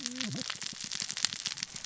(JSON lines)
{"label": "biophony, cascading saw", "recorder": "SoundTrap 600 or HydroMoth"}